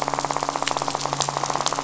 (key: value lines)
label: biophony, rattle
recorder: SoundTrap 500

label: biophony, midshipman
recorder: SoundTrap 500